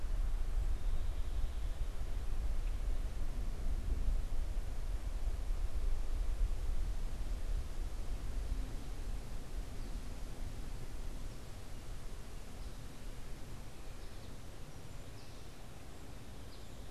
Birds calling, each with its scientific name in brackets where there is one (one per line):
American Goldfinch (Spinus tristis)